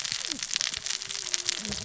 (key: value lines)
label: biophony, cascading saw
recorder: SoundTrap 600 or HydroMoth